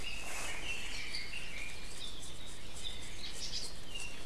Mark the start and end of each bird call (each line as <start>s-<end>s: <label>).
0.0s-2.0s: Red-billed Leiothrix (Leiothrix lutea)
1.9s-2.3s: Apapane (Himatione sanguinea)
2.8s-3.2s: Apapane (Himatione sanguinea)
3.1s-3.8s: Hawaii Elepaio (Chasiempis sandwichensis)
3.7s-4.2s: Apapane (Himatione sanguinea)